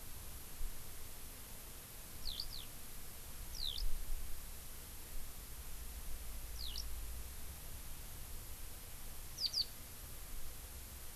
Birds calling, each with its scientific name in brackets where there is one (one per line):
Eurasian Skylark (Alauda arvensis)